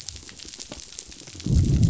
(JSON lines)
{"label": "biophony, growl", "recorder": "SoundTrap 500"}